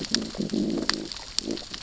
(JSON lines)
{"label": "biophony, growl", "recorder": "SoundTrap 600 or HydroMoth"}